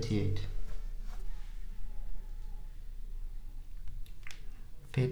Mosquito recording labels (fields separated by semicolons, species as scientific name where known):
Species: Anopheles arabiensis; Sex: female; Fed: unfed; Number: one; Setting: cup